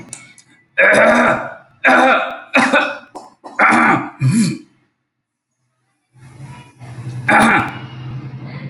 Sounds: Cough